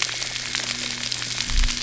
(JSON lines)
{"label": "anthrophony, boat engine", "recorder": "SoundTrap 300"}